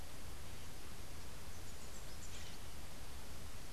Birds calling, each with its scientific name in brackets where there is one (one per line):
Crimson-fronted Parakeet (Psittacara finschi)